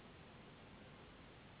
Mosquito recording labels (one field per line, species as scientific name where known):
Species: Anopheles gambiae s.s.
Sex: female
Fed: unfed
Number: one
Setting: insect culture